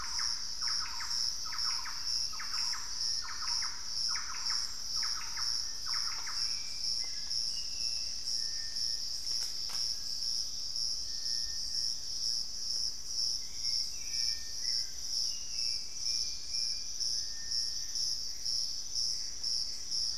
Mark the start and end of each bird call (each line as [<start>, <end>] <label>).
[0.00, 6.65] Thrush-like Wren (Campylorhynchus turdinus)
[0.00, 8.25] Hauxwell's Thrush (Turdus hauxwelli)
[9.65, 10.85] Collared Trogon (Trogon collaris)
[12.15, 13.15] Western Striolated-Puffbird (Nystalus obamai)
[12.95, 20.17] Hauxwell's Thrush (Turdus hauxwelli)
[15.85, 16.95] Ringed Woodpecker (Celeus torquatus)
[17.65, 20.17] Gray Antbird (Cercomacra cinerascens)